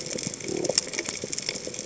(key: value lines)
label: biophony
recorder: HydroMoth